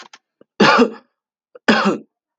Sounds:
Cough